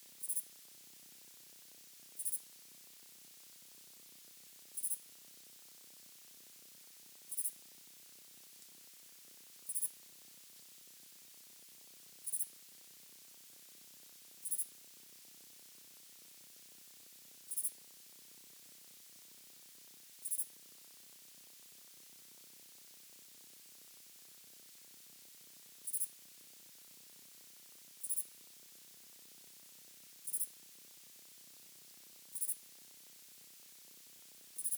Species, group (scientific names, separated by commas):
Pholidoptera griseoaptera, Orthoptera